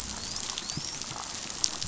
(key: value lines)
label: biophony, dolphin
recorder: SoundTrap 500